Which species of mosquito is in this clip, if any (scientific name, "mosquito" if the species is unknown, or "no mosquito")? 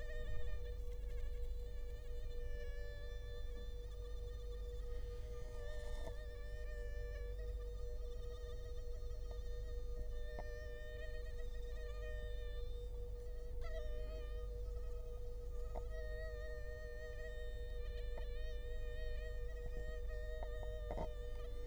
Culex quinquefasciatus